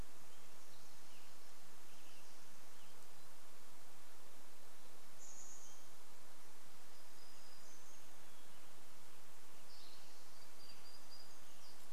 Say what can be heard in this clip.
Western Tanager song, Chestnut-backed Chickadee call, warbler song, Hermit Thrush song, Spotted Towhee song